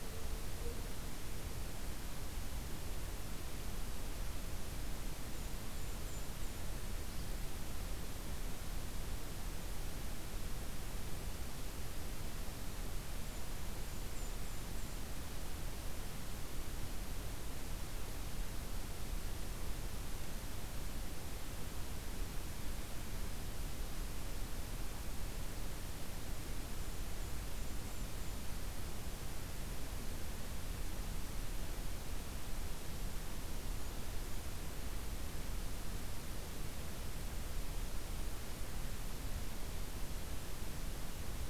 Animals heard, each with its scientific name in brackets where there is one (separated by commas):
Golden-crowned Kinglet (Regulus satrapa)